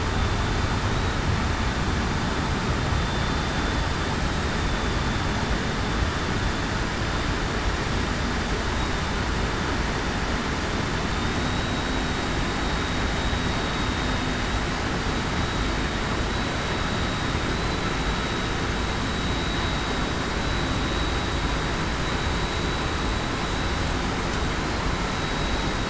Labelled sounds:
2.9	3.4	vessel noise, 3.5 to 3.6 kHz
11.2	11.9	vessel noise, 3.6 to 3.9 kHz
15.3	15.6	vessel noise, 3.8 to 3.9 kHz
20.4	20.8	vessel noise, 3.9 to 4.0 kHz
25.1	25.7	vessel noise, 3.8 to 3.9 kHz

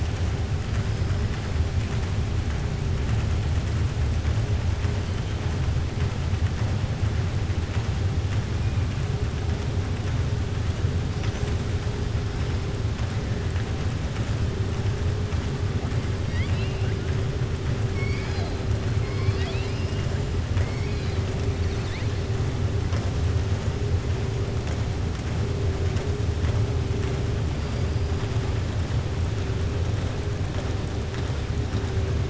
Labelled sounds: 16.2	17.0	killer whale, southern resident, 1.8 to 5.7 kHz
17.9	18.6	killer whale, southern resident, 0.69 to 5.6 kHz
19.0	20.0	killer whale, southern resident, 1.1 to 5.6 kHz

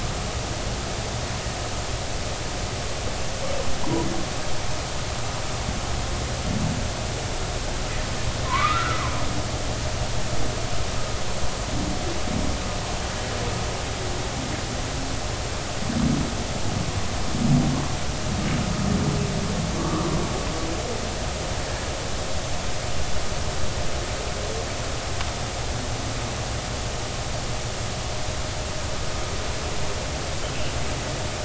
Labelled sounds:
8.4	9.0	humpback whale, 0.93 to 2.0 kHz
19.8	20.1	humpback whale, 1.1 to 1.3 kHz

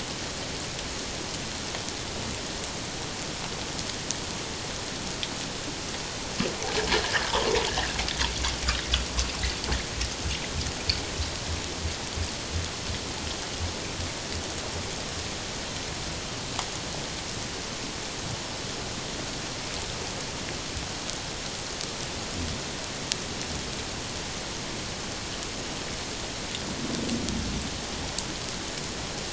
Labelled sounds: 6.9	8.0	bird, 0.88 to 2.0 kHz

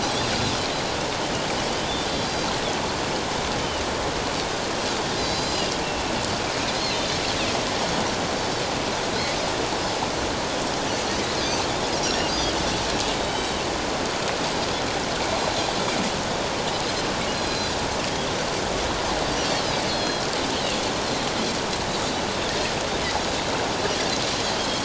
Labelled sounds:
2.0	2.5	Pacific white-sided dolphin, 3.1 to 4.8 kHz
5.2	5.7	Pacific white-sided dolphin, 3.9 to 7.4 kHz
8.4	8.6	Pacific white-sided dolphin, 5.2 to 5.4 kHz
12.0	12.5	Pacific white-sided dolphin, 4.6 to 6.7 kHz
13.2	13.5	Pacific white-sided dolphin, 3.7 to 3.9 kHz
17.3	17.7	Pacific white-sided dolphin, 4.0 to 4.9 kHz
19.9	20.3	Pacific white-sided dolphin, 3.2 to 4.5 kHz
24.5	24.8	Pacific white-sided dolphin, 3.1 to 3.4 kHz

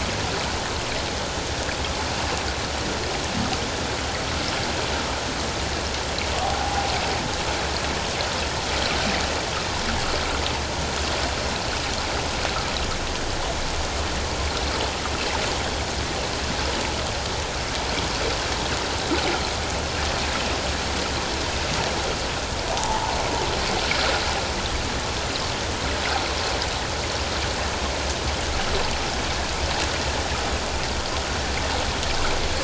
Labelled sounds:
6.4	6.9	humpback whale, 0.78 to 0.88 kHz
22.7	23.0	humpback whale, 0.78 to 0.97 kHz

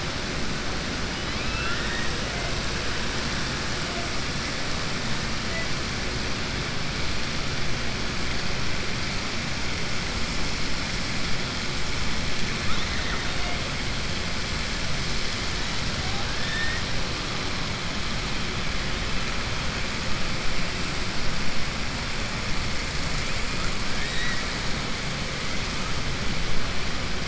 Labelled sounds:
1.2	2.1	killer whale, southern resident, 1.3 to 3.4 kHz

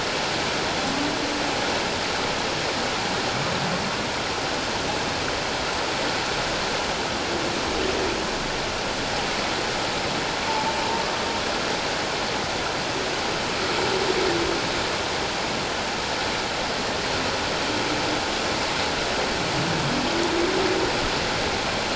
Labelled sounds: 10.5	10.7	humpback whale, 0.81 to 0.94 kHz

